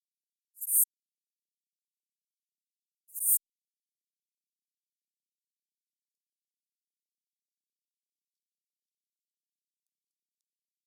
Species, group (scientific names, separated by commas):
Synephippius obvius, Orthoptera